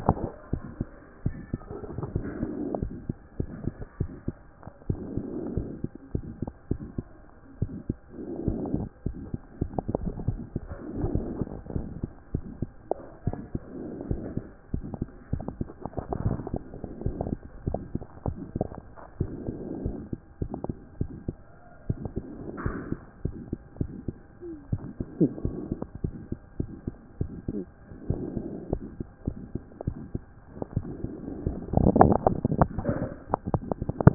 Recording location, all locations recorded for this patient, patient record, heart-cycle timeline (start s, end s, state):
mitral valve (MV)
aortic valve (AV)+pulmonary valve (PV)+tricuspid valve (TV)+mitral valve (MV)
#Age: Child
#Sex: Male
#Height: 101.0 cm
#Weight: 16.6 kg
#Pregnancy status: False
#Murmur: Present
#Murmur locations: mitral valve (MV)+pulmonary valve (PV)+tricuspid valve (TV)
#Most audible location: pulmonary valve (PV)
#Systolic murmur timing: Holosystolic
#Systolic murmur shape: Decrescendo
#Systolic murmur grading: I/VI
#Systolic murmur pitch: Low
#Systolic murmur quality: Blowing
#Diastolic murmur timing: nan
#Diastolic murmur shape: nan
#Diastolic murmur grading: nan
#Diastolic murmur pitch: nan
#Diastolic murmur quality: nan
#Outcome: Abnormal
#Campaign: 2014 screening campaign
0.00	0.52	unannotated
0.52	0.62	S1
0.62	0.78	systole
0.78	0.88	S2
0.88	1.24	diastole
1.24	1.36	S1
1.36	1.52	systole
1.52	1.60	S2
1.60	1.98	diastole
1.98	2.08	S1
2.08	2.16	systole
2.16	2.26	S2
2.26	2.80	diastole
2.80	2.92	S1
2.92	3.08	systole
3.08	3.16	S2
3.16	3.38	diastole
3.38	3.48	S1
3.48	3.64	systole
3.64	3.74	S2
3.74	4.00	diastole
4.00	4.10	S1
4.10	4.26	systole
4.26	4.36	S2
4.36	4.88	diastole
4.88	5.00	S1
5.00	5.14	systole
5.14	5.24	S2
5.24	5.54	diastole
5.54	5.66	S1
5.66	5.82	systole
5.82	5.90	S2
5.90	6.14	diastole
6.14	6.24	S1
6.24	6.40	systole
6.40	6.50	S2
6.50	6.70	diastole
6.70	6.80	S1
6.80	6.96	systole
6.96	7.06	S2
7.06	7.62	diastole
7.62	7.72	S1
7.72	7.88	systole
7.88	7.96	S2
7.96	8.47	diastole
8.47	8.57	S1
8.57	8.73	systole
8.73	8.81	S2
8.81	9.07	diastole
9.07	9.16	S1
9.16	9.32	systole
9.32	9.40	S2
9.40	9.62	diastole
9.62	9.70	S1
9.70	9.78	systole
9.78	9.84	S2
9.84	10.07	diastole
10.07	34.14	unannotated